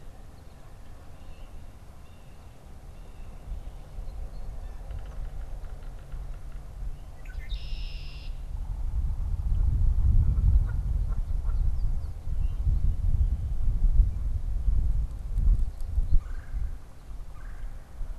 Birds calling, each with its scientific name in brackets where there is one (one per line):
Canada Goose (Branta canadensis)
Yellow-bellied Sapsucker (Sphyrapicus varius)
Red-winged Blackbird (Agelaius phoeniceus)
Blue Jay (Cyanocitta cristata)
Red-bellied Woodpecker (Melanerpes carolinus)